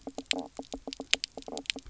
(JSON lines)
{"label": "biophony, knock croak", "recorder": "SoundTrap 300"}